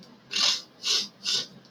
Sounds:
Sniff